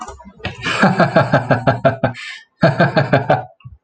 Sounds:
Laughter